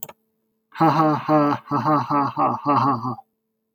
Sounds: Laughter